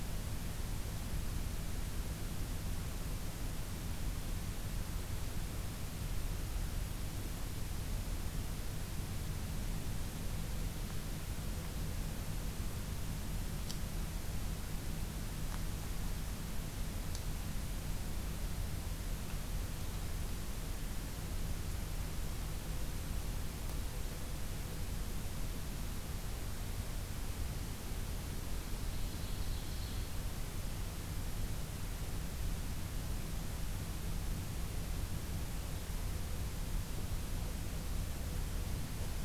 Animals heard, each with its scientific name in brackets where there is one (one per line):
Ovenbird (Seiurus aurocapilla)